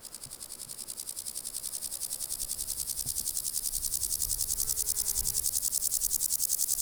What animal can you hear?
Chorthippus binotatus, an orthopteran